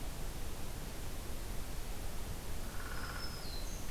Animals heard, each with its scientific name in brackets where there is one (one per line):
Black-throated Green Warbler (Setophaga virens)
Downy Woodpecker (Dryobates pubescens)